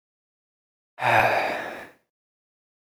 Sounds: Sigh